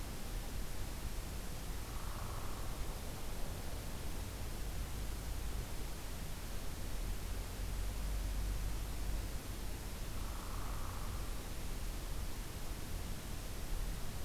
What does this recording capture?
Hairy Woodpecker